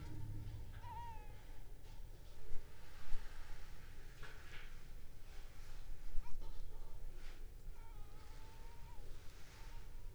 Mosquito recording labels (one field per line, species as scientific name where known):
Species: Anopheles arabiensis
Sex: female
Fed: unfed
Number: one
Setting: cup